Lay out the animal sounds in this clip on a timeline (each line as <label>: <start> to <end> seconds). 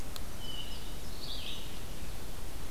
Hermit Thrush (Catharus guttatus): 0.3 to 1.1 seconds
Red-eyed Vireo (Vireo olivaceus): 1.0 to 2.7 seconds